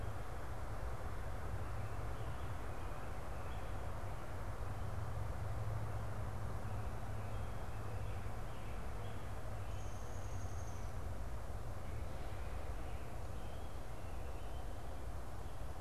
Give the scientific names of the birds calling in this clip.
Turdus migratorius, Dryobates pubescens